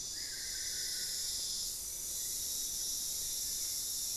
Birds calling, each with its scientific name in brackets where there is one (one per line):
Spot-winged Antshrike (Pygiptila stellaris)
Solitary Black Cacique (Cacicus solitarius)